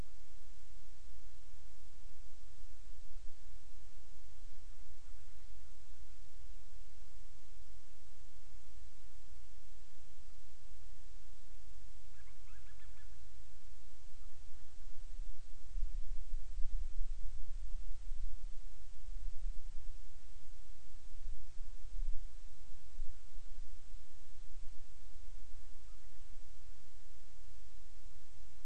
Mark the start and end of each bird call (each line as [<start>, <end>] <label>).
[12.04, 13.24] Band-rumped Storm-Petrel (Hydrobates castro)